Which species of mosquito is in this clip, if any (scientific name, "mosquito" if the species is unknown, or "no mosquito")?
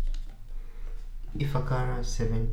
Anopheles arabiensis